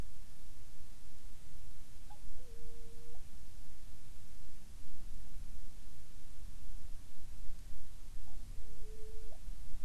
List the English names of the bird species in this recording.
Hawaiian Petrel